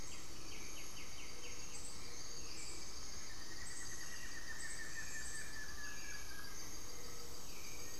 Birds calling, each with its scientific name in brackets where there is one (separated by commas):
Undulated Tinamou (Crypturellus undulatus), White-winged Becard (Pachyramphus polychopterus), Buff-throated Woodcreeper (Xiphorhynchus guttatus), Gray-fronted Dove (Leptotila rufaxilla)